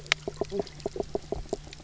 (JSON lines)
{"label": "biophony, knock croak", "recorder": "SoundTrap 300"}